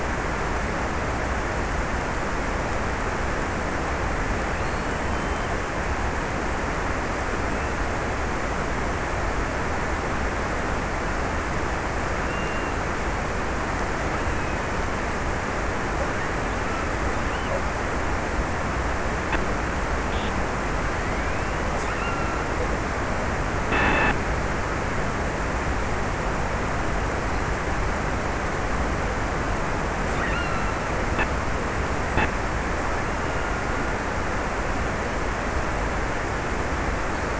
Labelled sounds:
3.8	5.8	killer whale, offshore, 1.6 to 3.5 kHz
11.6	15.1	killer whale, offshore, 1.9 to 3.4 kHz
21.2	22.6	killer whale, offshore, 1.3 to 3.1 kHz
29.9	31.5	killer whale, offshore, 1.1 to 3.1 kHz

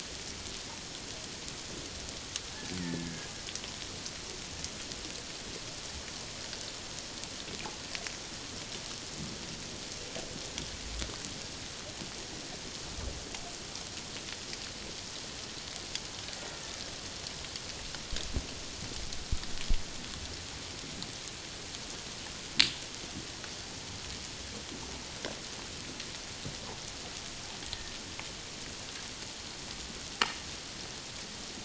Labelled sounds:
2.8	3.3	killer whale, Bigg's (transient), 1.6 to 2.0 kHz
27.7	27.9	killer whale, Bigg's (transient), 1.7 to 1.9 kHz

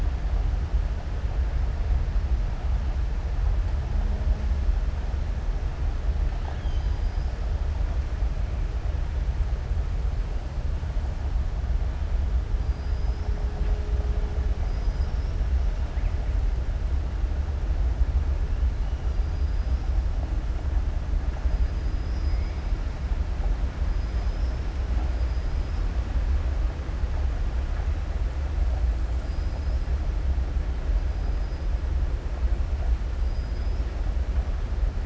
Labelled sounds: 6.3	7.4	killer whale, southern resident, 0.71 to 6.5 kHz
12.6	13.3	killer whale, southern resident, 4.8 to 5.6 kHz
29.2	29.8	killer whale, southern resident, 4.3 to 5.7 kHz
33.2	33.9	killer whale, southern resident, 4.9 to 5.6 kHz

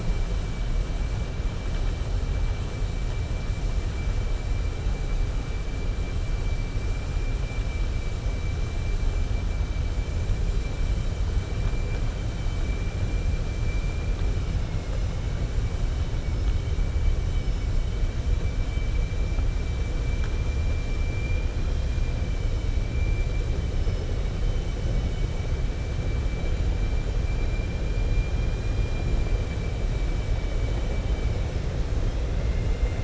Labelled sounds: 14.6	15.1	vessel noise, 1.3 to 2.9 kHz
21.1	22.1	vessel noise, 2.4 to 4.9 kHz
24.9	25.3	vessel noise, 2.2 to 3.8 kHz
28.0	29.1	vessel noise, 1.6 to 4.8 kHz
30.3	31.3	vessel noise, 1.9 to 3.8 kHz

